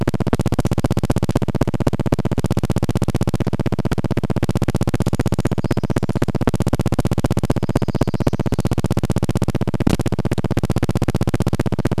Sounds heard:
Brown Creeper song
warbler song
recorder noise

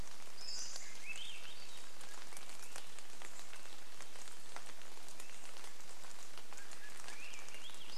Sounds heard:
Swainson's Thrush song
Chestnut-backed Chickadee call
rain
Pacific-slope Flycatcher call
Swainson's Thrush call

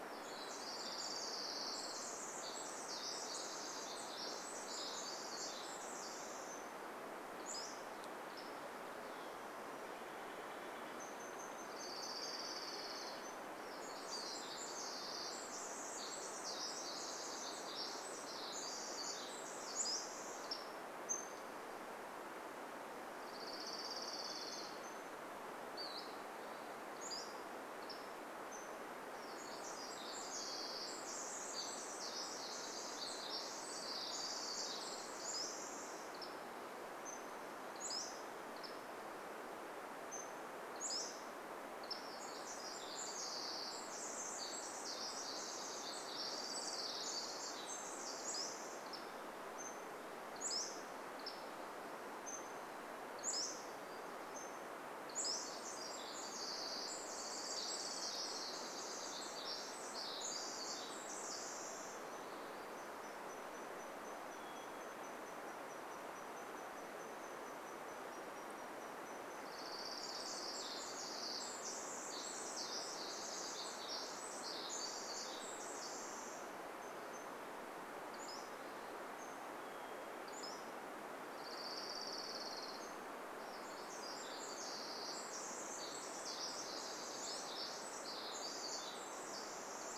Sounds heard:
Orange-crowned Warbler song
Hammond's Flycatcher song
Steller's Jay call
Pacific-slope Flycatcher call
Varied Thrush song
Pacific-slope Flycatcher song
warbler song
Pacific Wren song
Golden-crowned Kinglet call
Hermit Thrush song

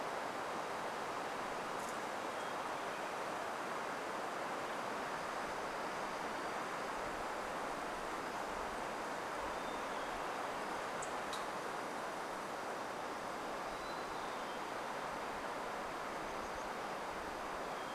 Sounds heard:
warbler song
insect buzz
Hermit Thrush song

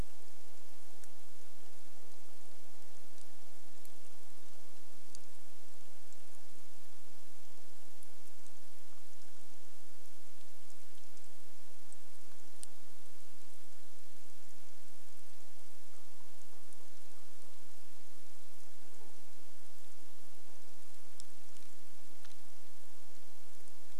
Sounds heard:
rain
Common Raven call

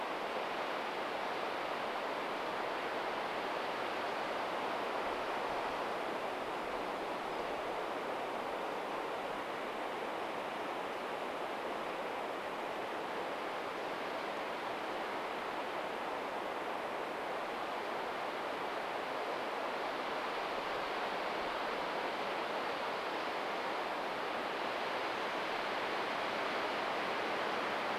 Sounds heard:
unidentified bird chip note

